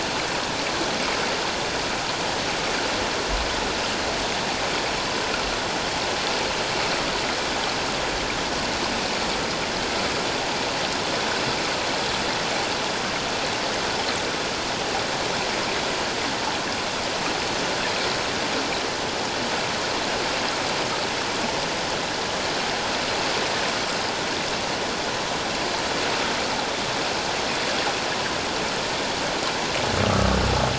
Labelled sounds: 30.0	30.4	humpback whale, 1.1 to 1.4 kHz

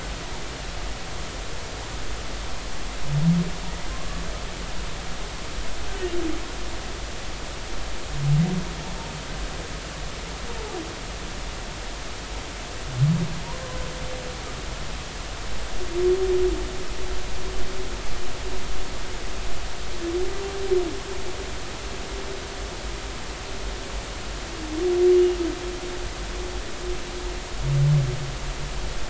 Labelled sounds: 25.1	25.4	humpback whale, 2.8 to 3.0 kHz

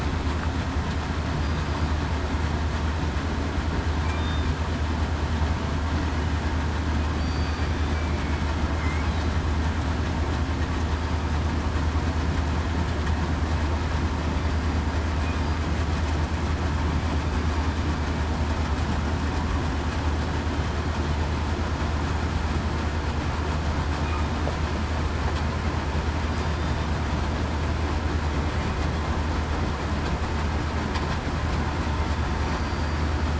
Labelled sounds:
4.1	4.5	killer whale, southern resident, 3.5 to 3.7 kHz
7.2	7.7	killer whale, southern resident, 4.5 to 4.7 kHz
8.1	9.0	killer whale, southern resident, 2.0 to 2.3 kHz
32.4	32.7	killer whale, southern resident, 5.8 to 5.9 kHz

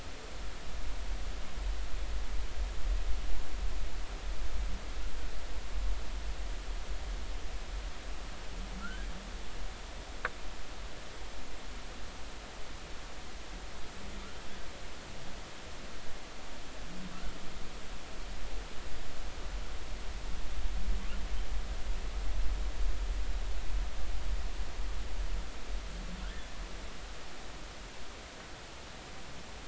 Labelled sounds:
8.8	9.1	humpback whale, 1.3 to 1.7 kHz

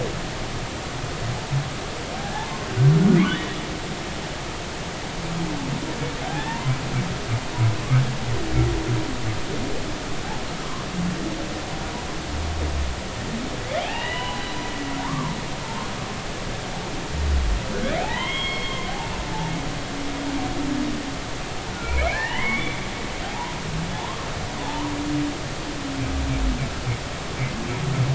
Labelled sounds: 2.2	2.7	humpback whale, 0.80 to 1.8 kHz
3.3	3.5	humpback whale, 2.9 to 3.1 kHz
6.2	6.8	humpback whale, 0.80 to 1.1 kHz
13.8	15.3	humpback whale, 0.80 to 4.0 kHz
17.7	18.9	humpback whale, 0.80 to 3.3 kHz
19.3	19.5	humpback whale, 0.83 to 0.96 kHz
21.7	22.8	humpback whale, 0.83 to 3.5 kHz
23.3	23.5	humpback whale, 0.80 to 1.1 kHz
23.9	24.9	humpback whale, 0.80 to 1.2 kHz

